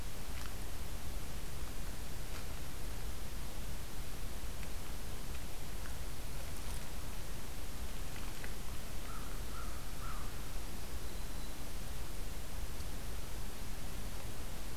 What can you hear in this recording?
American Crow, Black-throated Green Warbler